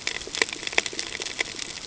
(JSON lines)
{"label": "ambient", "recorder": "HydroMoth"}